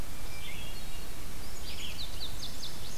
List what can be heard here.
Hermit Thrush, Red-eyed Vireo, Indigo Bunting